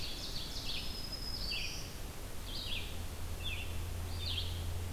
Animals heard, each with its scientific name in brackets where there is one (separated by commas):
Ovenbird (Seiurus aurocapilla), Red-eyed Vireo (Vireo olivaceus), Black-throated Green Warbler (Setophaga virens)